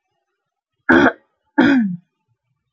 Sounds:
Throat clearing